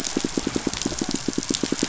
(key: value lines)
label: biophony, pulse
recorder: SoundTrap 500